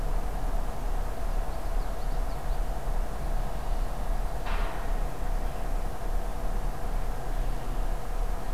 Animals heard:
Common Yellowthroat (Geothlypis trichas)

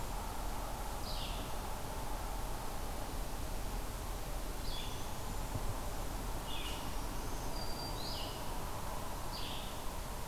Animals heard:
Red-eyed Vireo (Vireo olivaceus)
unidentified call
Black-throated Green Warbler (Setophaga virens)

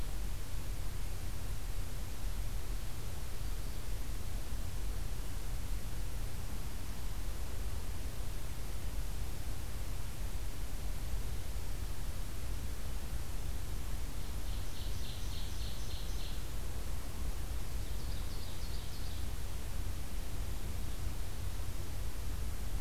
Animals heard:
Ovenbird (Seiurus aurocapilla)

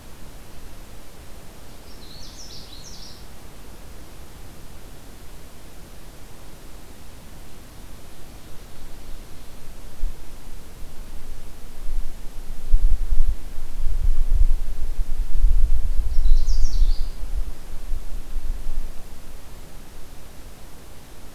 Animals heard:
Canada Warbler (Cardellina canadensis)

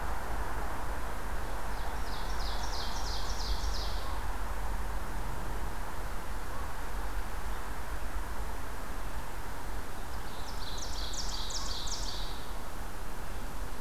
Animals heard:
Ovenbird (Seiurus aurocapilla)

